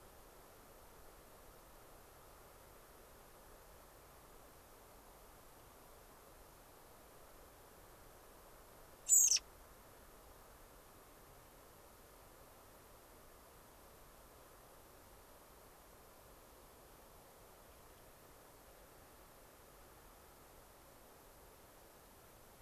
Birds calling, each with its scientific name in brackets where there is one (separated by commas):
American Robin (Turdus migratorius)